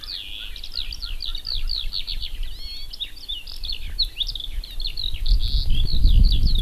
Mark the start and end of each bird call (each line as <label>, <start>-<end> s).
Erckel's Francolin (Pternistis erckelii), 0.0-2.0 s
Eurasian Skylark (Alauda arvensis), 0.0-6.6 s